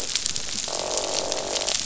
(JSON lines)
{"label": "biophony, croak", "recorder": "SoundTrap 500"}